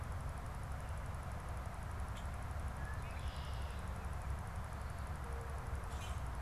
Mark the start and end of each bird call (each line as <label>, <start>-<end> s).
Red-winged Blackbird (Agelaius phoeniceus), 2.6-4.1 s
Common Grackle (Quiscalus quiscula), 5.8-6.2 s